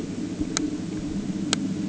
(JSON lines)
{"label": "anthrophony, boat engine", "recorder": "HydroMoth"}